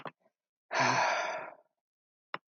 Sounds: Sigh